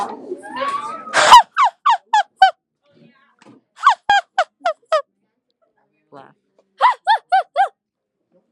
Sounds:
Laughter